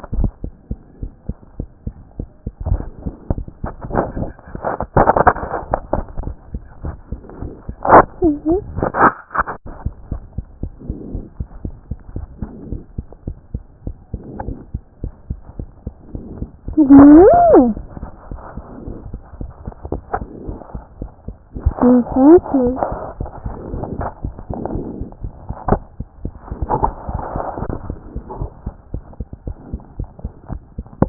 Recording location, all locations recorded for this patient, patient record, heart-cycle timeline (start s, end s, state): mitral valve (MV)
aortic valve (AV)+aortic valve (AV)+aortic valve (AV)+mitral valve (MV)
#Age: Child
#Sex: Male
#Height: 99.0 cm
#Weight: 15.5 kg
#Pregnancy status: False
#Murmur: Absent
#Murmur locations: nan
#Most audible location: nan
#Systolic murmur timing: nan
#Systolic murmur shape: nan
#Systolic murmur grading: nan
#Systolic murmur pitch: nan
#Systolic murmur quality: nan
#Diastolic murmur timing: nan
#Diastolic murmur shape: nan
#Diastolic murmur grading: nan
#Diastolic murmur pitch: nan
#Diastolic murmur quality: nan
#Outcome: Normal
#Campaign: 2014 screening campaign
0.00	10.09	unannotated
10.09	10.19	S1
10.19	10.34	systole
10.34	10.42	S2
10.42	10.62	diastole
10.62	10.74	S1
10.74	10.88	systole
10.88	10.94	S2
10.94	11.12	diastole
11.12	11.24	S1
11.24	11.38	systole
11.38	11.48	S2
11.48	11.64	diastole
11.64	11.76	S1
11.76	11.90	systole
11.90	11.98	S2
11.98	12.16	diastole
12.16	12.26	S1
12.26	12.40	systole
12.40	12.50	S2
12.50	12.70	diastole
12.70	12.80	S1
12.80	12.96	systole
12.96	13.06	S2
13.06	13.26	diastole
13.26	13.36	S1
13.36	13.54	systole
13.54	13.62	S2
13.62	13.86	diastole
13.86	13.96	S1
13.96	14.12	systole
14.12	14.22	S2
14.22	14.46	diastole
14.46	14.56	S1
14.56	14.72	systole
14.72	14.82	S2
14.82	15.02	diastole
15.02	15.14	S1
15.14	15.30	systole
15.30	15.38	S2
15.38	15.58	diastole
15.58	15.70	S1
15.70	15.86	systole
15.86	15.94	S2
15.94	16.14	diastole
16.14	31.09	unannotated